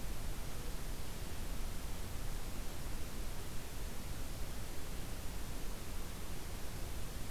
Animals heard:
forest ambience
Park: Acadia National Park